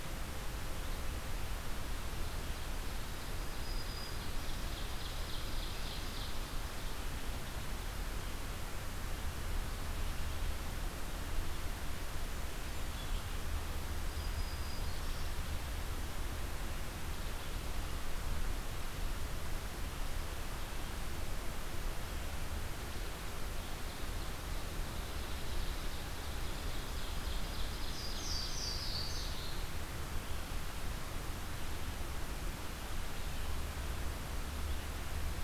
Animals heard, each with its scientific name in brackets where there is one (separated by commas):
Louisiana Waterthrush (Parkesia motacilla), Black-throated Green Warbler (Setophaga virens), Ovenbird (Seiurus aurocapilla)